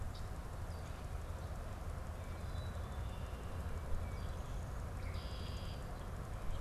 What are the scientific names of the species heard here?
Agelaius phoeniceus, Poecile atricapillus